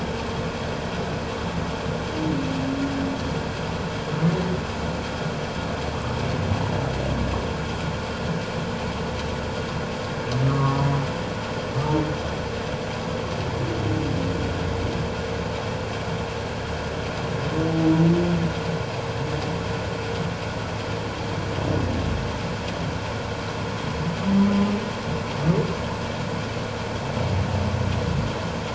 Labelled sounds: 10.4	11.0	humpback whale, 0.91 to 1.3 kHz

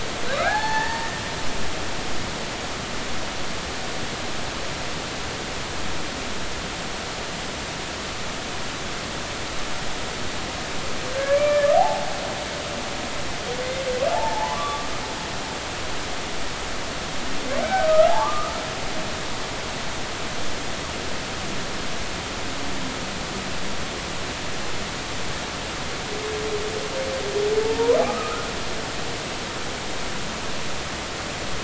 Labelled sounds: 0.3	1.2	humpback whale, 0.80 to 4.4 kHz
11.3	12.1	humpback whale, 0.80 to 2.4 kHz
14.1	15.0	humpback whale, 0.80 to 1.3 kHz
17.6	18.5	humpback whale, 0.80 to 1.6 kHz
27.6	28.4	humpback whale, 0.83 to 1.5 kHz

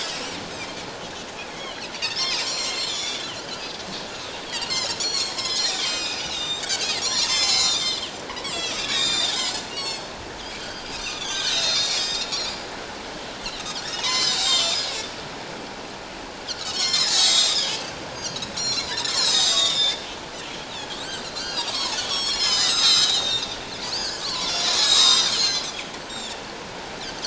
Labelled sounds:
1.5	3.3	Pacific white-sided dolphin, 2.0 to 7.6 kHz
3.6	3.9	Pacific white-sided dolphin, 4.8 to 5.0 kHz
4.5	6.7	Pacific white-sided dolphin, 1.8 to 7.9 kHz
7.0	10.1	Pacific white-sided dolphin, 0.88 to 8.0 kHz
10.6	12.6	Pacific white-sided dolphin, 1.4 to 8.0 kHz
13.8	14.9	Pacific white-sided dolphin, 2.0 to 7.7 kHz
16.6	17.8	Pacific white-sided dolphin, 1.7 to 7.8 kHz
18.1	20.0	Pacific white-sided dolphin, 3.2 to 7.5 kHz
21.2	25.7	Pacific white-sided dolphin, 0.81 to 8.0 kHz
26.1	26.4	Pacific white-sided dolphin, 3.2 to 7.5 kHz

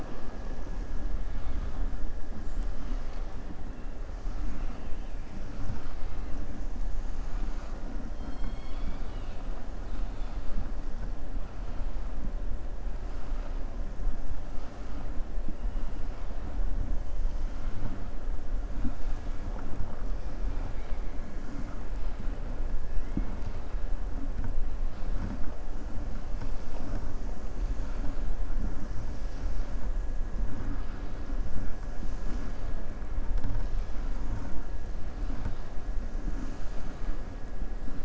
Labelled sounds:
8.1	9.4	killer whale, southern resident, 1.5 to 5.3 kHz
9.8	10.4	killer whale, southern resident, 2.5 to 4.8 kHz

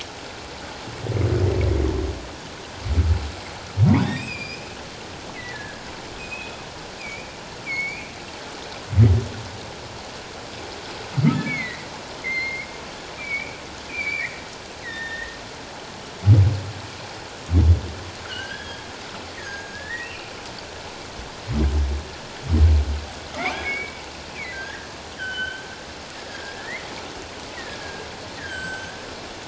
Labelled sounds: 4.0	4.7	humpback whale, 2.3 to 5.2 kHz
5.3	6.6	humpback whale, 1.5 to 2.6 kHz
7.0	8.1	humpback whale, 2.1 to 4.8 kHz
11.3	12.7	humpback whale, 1.7 to 4.3 kHz
13.1	14.4	humpback whale, 1.8 to 4.8 kHz
14.8	15.3	humpback whale, 1.7 to 4.0 kHz
18.2	20.3	humpback whale, 1.3 to 3.4 kHz
23.3	24.9	humpback whale, 1.5 to 2.7 kHz
25.2	26.9	humpback whale, 1.4 to 3.3 kHz
27.8	29.0	humpback whale, 1.5 to 7.8 kHz

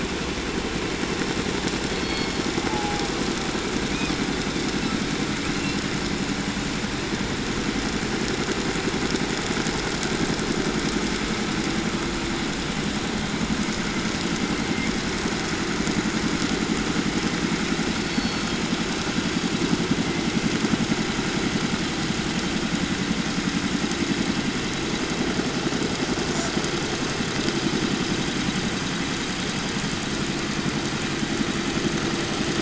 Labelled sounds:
1.8	3.2	killer whale, 0.60 to 5.3 kHz
3.8	5.0	killer whale, 1.1 to 6.6 kHz
5.4	5.8	killer whale, 2.1 to 4.4 kHz
14.3	15.0	killer whale, southern resident, 1.6 to 2.4 kHz
17.8	18.7	killer whale, 2.4 to 5.7 kHz
19.8	20.7	killer whale, 1.6 to 2.5 kHz
26.3	26.5	killer whale, southern resident, J pod, call S05, 3.0 to 8.0 kHz

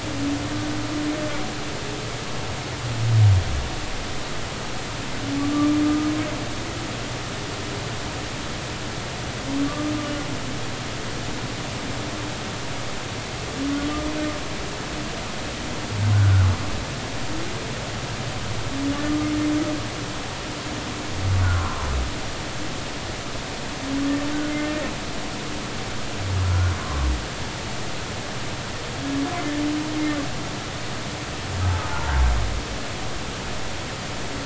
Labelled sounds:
5.4	6.1	humpback whale, 1.1 to 1.3 kHz
9.7	9.9	humpback whale, 1.1 to 1.2 kHz
16.1	16.5	humpback whale, 1.3 to 1.6 kHz
19.1	19.3	humpback whale, 1.2 to 1.3 kHz
21.5	21.9	humpback whale, 0.90 to 1.2 kHz
26.4	27.1	humpback whale, 0.99 to 1.5 kHz
31.9	32.1	humpback whale, 0.83 to 1.0 kHz

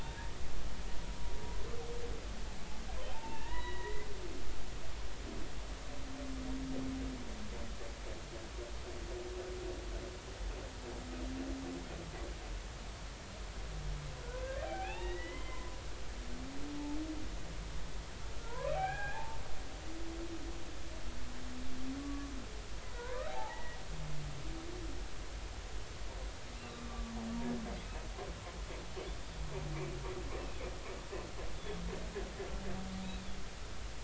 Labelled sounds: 0.0	0.5	humpback whale, 1.4 to 2.8 kHz
3.1	4.1	humpback whale, 0.80 to 4.0 kHz
14.6	15.8	humpback whale, 0.80 to 3.9 kHz
18.4	19.4	humpback whale, 0.80 to 3.4 kHz
22.0	23.8	humpback whale, 0.80 to 2.0 kHz
26.6	27.1	humpback whale, 1.0 to 1.2 kHz
31.5	31.8	humpback whale, 3.3 to 3.6 kHz

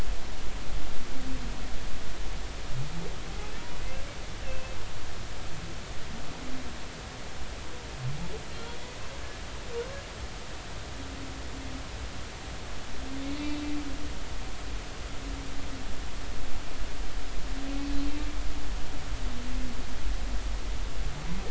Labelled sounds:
4.4	4.8	humpback whale, 2.6 to 2.8 kHz

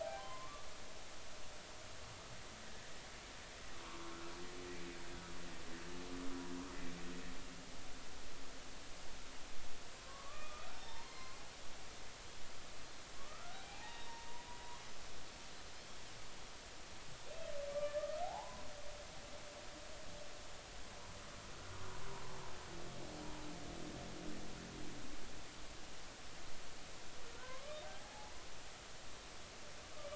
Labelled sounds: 0.0	0.7	humpback whale, 0.80 to 1.2 kHz
3.8	4.2	humpback whale, 0.90 to 1.2 kHz
10.0	11.3	humpback whale, 0.86 to 4.3 kHz
13.2	14.5	humpback whale, 0.80 to 3.8 kHz
17.7	18.6	humpback whale, 0.80 to 2.4 kHz
27.3	28.5	humpback whale, 0.80 to 1.7 kHz

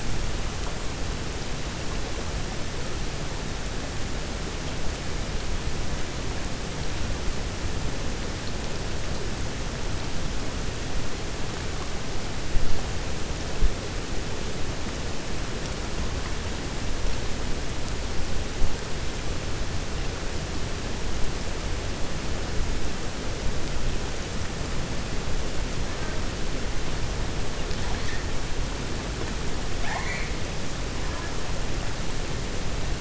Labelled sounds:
29.7	30.3	killer whale, 0.68 to 4.5 kHz

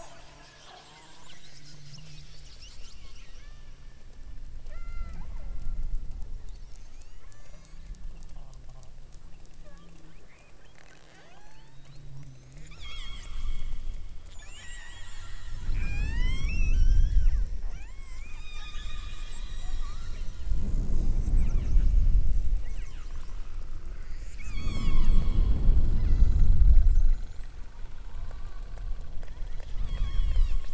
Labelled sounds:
3.3	3.9	killer whale, southern Alaska resident, 0.89 to 3.8 kHz
4.6	5.2	killer whale, southern Alaska resident, 0.43 to 8.0 kHz
6.5	7.8	killer whale, southern Alaska resident, 0.87 to 8.0 kHz
9.6	10.0	killer whale, southern Alaska resident, 0.39 to 3.7 kHz
10.6	11.9	killer whale, southern Alaska resident, 0.34 to 8.0 kHz
12.6	14.0	killer whale, southern Alaska resident, 0.78 to 8.0 kHz
14.3	20.4	killer whale, southern Alaska resident, 0.39 to 8.0 kHz
21.4	21.9	killer whale, southern Alaska resident, 1.3 to 3.2 kHz
22.7	23.3	killer whale, southern Alaska resident, 0.87 to 3.3 kHz
24.2	25.6	killer whale, southern Alaska resident, 0.75 to 8.0 kHz
26.0	26.6	killer whale, southern Alaska resident, 1.2 to 7.6 kHz
29.7	30.7	killer whale, southern Alaska resident, 0.78 to 8.0 kHz

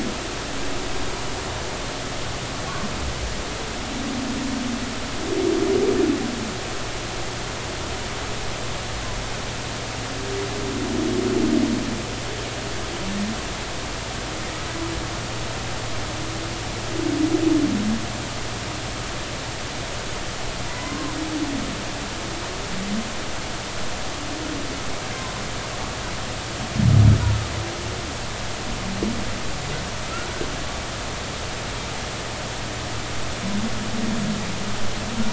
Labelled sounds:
20.7	21.1	humpback whale, 0.93 to 2.1 kHz

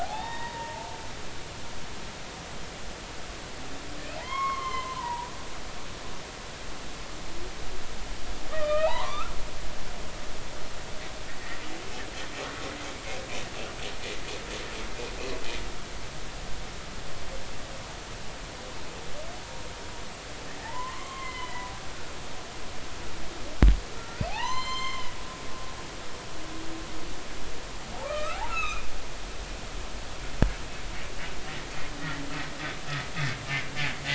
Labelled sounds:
0.0	0.9	humpback whale, 0.80 to 3.8 kHz
4.2	5.3	humpback whale, 0.80 to 3.3 kHz
8.5	9.3	humpback whale, 0.80 to 3.2 kHz
20.6	21.7	humpback whale, 0.80 to 4.2 kHz
24.0	25.2	humpback whale, 0.80 to 8.0 kHz
28.0	28.8	humpback whale, 1.1 to 6.8 kHz

